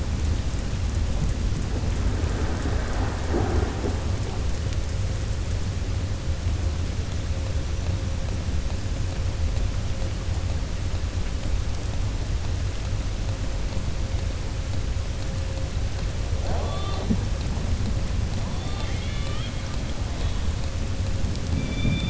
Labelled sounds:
18.6	19.7	killer whale, southern resident, 0.81 to 4.6 kHz

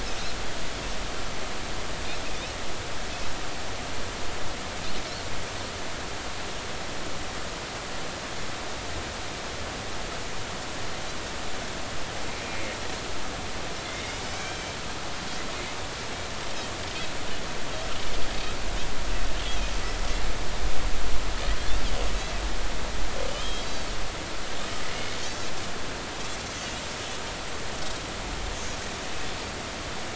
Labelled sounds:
12.5	12.7	Pacific white-sided dolphin, 2.1 to 2.2 kHz
13.8	14.8	Pacific white-sided dolphin, 2.0 to 5.6 kHz
23.3	23.9	Pacific white-sided dolphin, 2.9 to 6.0 kHz
25.2	25.5	Pacific white-sided dolphin, 5.1 to 6.8 kHz

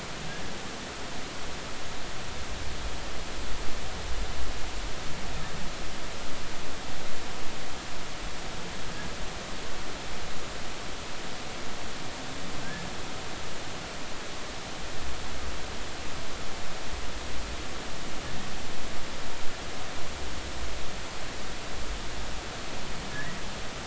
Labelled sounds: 23.1	23.4	humpback whale, 1.6 to 2.0 kHz

